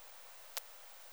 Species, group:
Poecilimon thoracicus, Orthoptera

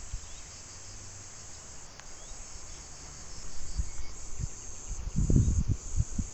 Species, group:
Cicadatra atra, Cicadidae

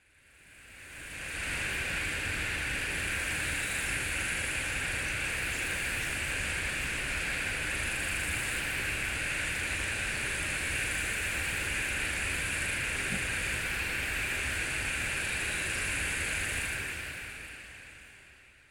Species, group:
Psaltoda moerens, Cicadidae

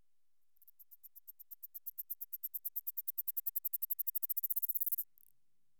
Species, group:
Platystolus martinezii, Orthoptera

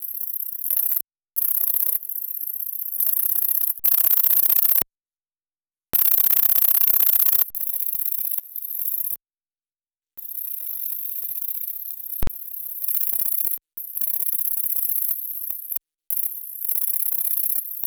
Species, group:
Tettigonia longispina, Orthoptera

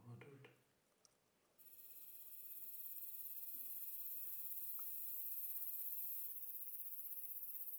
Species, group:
Platycleis intermedia, Orthoptera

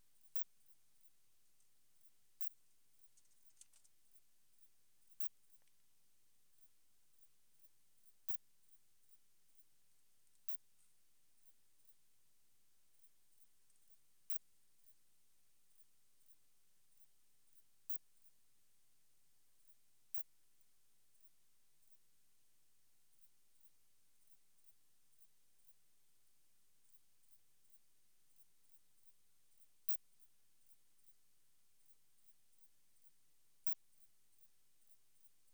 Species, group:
Poecilimon zimmeri, Orthoptera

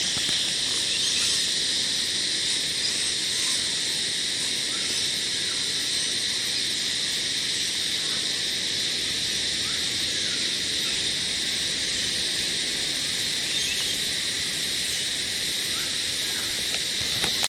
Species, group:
Psaltoda harrisii, Cicadidae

